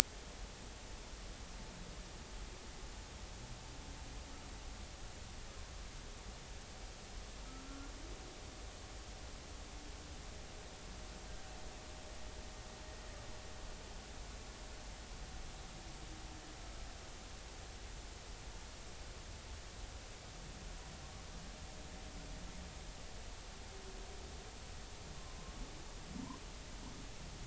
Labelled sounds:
7.7	7.9	humpback whale, 1.3 to 1.4 kHz
25.2	25.5	humpback whale, 0.99 to 1.1 kHz

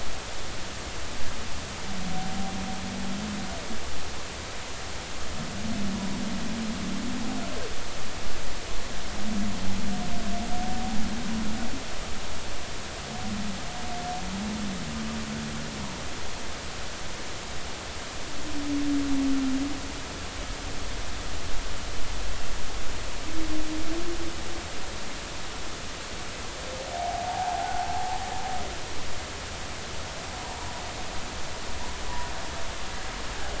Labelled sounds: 26.9	28.1	humpback whale, 0.80 to 0.96 kHz

